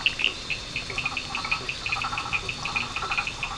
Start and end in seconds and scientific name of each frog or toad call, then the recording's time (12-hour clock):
0.0	3.5	Boana faber
0.0	3.5	Elachistocleis bicolor
0.0	3.5	Sphaenorhynchus surdus
0.6	3.5	Boana prasina
11:15pm